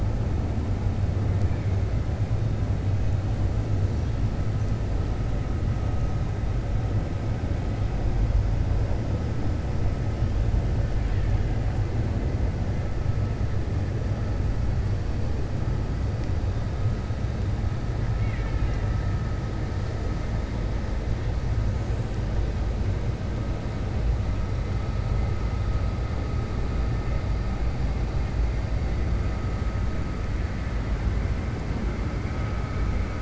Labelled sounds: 18.1	19.0	killer whale, Bigg's (transient), 0.94 to 3.7 kHz

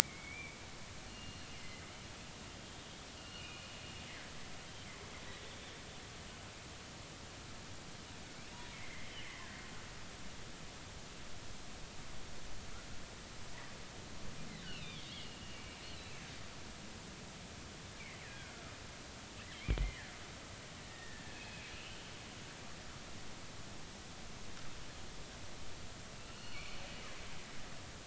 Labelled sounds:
0.0	0.6	killer whale, northern resident, G clan, 2.1 to 2.4 kHz
1.1	1.8	killer whale, northern resident, G clan, GG subclan, call N23ii, 2.0 to 2.9 kHz
3.2	3.7	killer whale, northern resident, G clan, GG subclan, 2.4 to 3.0 kHz
8.7	9.3	killer whale, northern resident, G clan, GG subclan, 1.9 to 3.2 kHz
14.7	15.6	killer whale, northern resident, G clan, GG subclan, 2.3 to 4.2 kHz
18.2	18.5	killer whale, northern resident, 1.4 to 2.0 kHz
19.8	21.4	killer whale, northern resident, 1.6 to 2.2 kHz
21.3	22.0	killer whale, northern resident, G clan, GG subclan, 2.4 to 3.1 kHz
26.3	26.8	killer whale, northern resident, G clan, GG subclan, 1.4 to 4.4 kHz

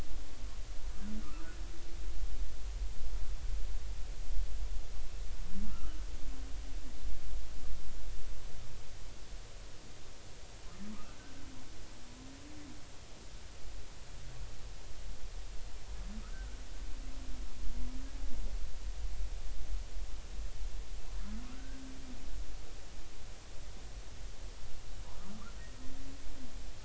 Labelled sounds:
1.2	1.5	humpback whale, 1.2 to 1.4 kHz
5.7	5.9	humpback whale, 1.2 to 1.4 kHz
10.9	11.2	humpback whale, 1.1 to 1.5 kHz
16.2	16.6	humpback whale, 1.2 to 1.6 kHz
21.5	21.8	humpback whale, 1.3 to 1.6 kHz

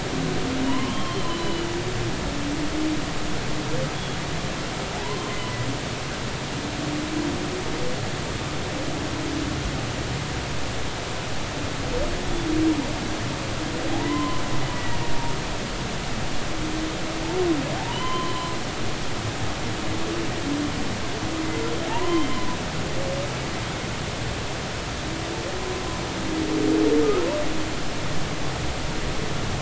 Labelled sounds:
0.6	1.7	humpback whale, 0.90 to 4.2 kHz
5.0	5.4	humpback whale, 0.93 to 3.2 kHz
13.9	14.4	humpback whale, 0.80 to 3.1 kHz
17.8	18.5	humpback whale, 0.80 to 4.1 kHz
21.9	22.6	humpback whale, 0.83 to 1.1 kHz

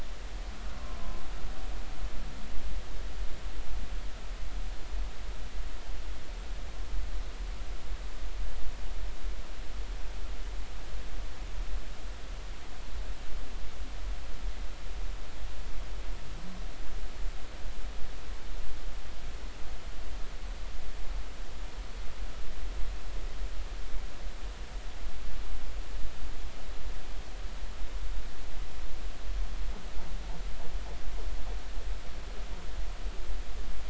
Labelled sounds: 0.7	1.0	humpback whale, 0.99 to 1.1 kHz

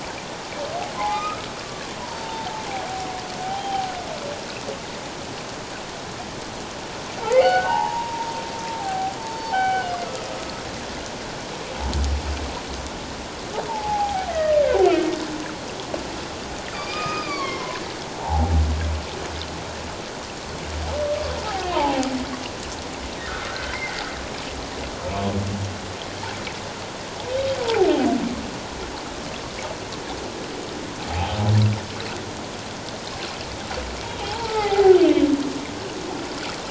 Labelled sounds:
1.0	2.5	humpback whale, 0.78 to 2.6 kHz
3.4	3.9	humpback whale, 0.78 to 3.2 kHz
7.3	8.3	humpback whale, 0.78 to 3.0 kHz
8.8	9.9	humpback whale, 0.78 to 4.6 kHz
13.7	14.6	humpback whale, 0.78 to 2.1 kHz
16.7	18.5	humpback whale, 0.78 to 5.0 kHz
21.7	22.1	humpback whale, 0.78 to 1.1 kHz
23.5	24.0	humpback whale, 1.3 to 2.2 kHz
27.6	27.9	humpback whale, 0.78 to 1.0 kHz
31.1	31.4	humpback whale, 0.78 to 0.94 kHz
34.3	35.0	humpback whale, 0.78 to 1.4 kHz

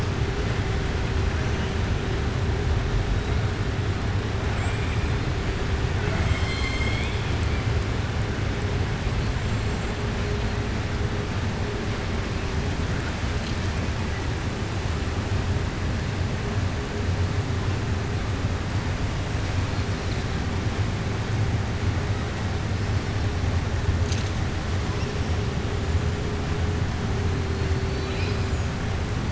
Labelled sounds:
5.9	7.3	killer whale, southern resident, 0.65 to 7.8 kHz
27.8	28.5	killer whale, southern resident, 2.3 to 5.3 kHz

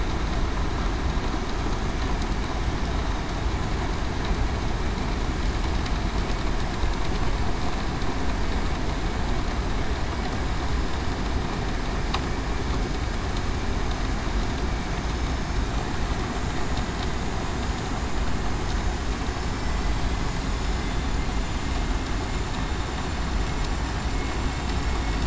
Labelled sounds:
15.0	15.6	vessel noise, 5.1 to 5.4 kHz
16.2	16.6	vessel noise, 6.77 to 6.84 kHz
18.5	19.1	vessel noise, 6.9 to 7.1 kHz
19.4	19.8	vessel noise, 7.1 to 7.4 kHz
20.1	20.5	vessel noise, 7.5 to 7.6 kHz
21.0	21.5	vessel noise, 7.0 to 7.1 kHz
22.3	23.4	vessel noise, 7.1 to 7.2 kHz

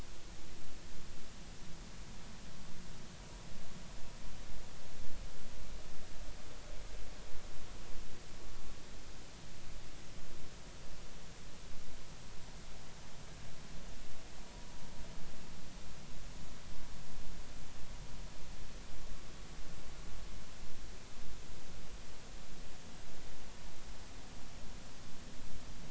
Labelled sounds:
14.5	14.7	vessel noise, 0.93 to 1.2 kHz

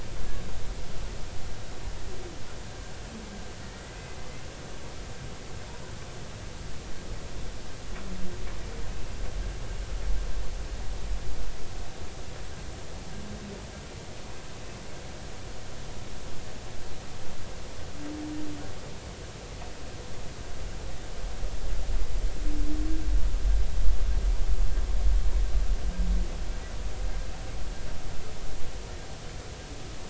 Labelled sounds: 3.6	4.0	humpback whale, 1.8 to 2.0 kHz

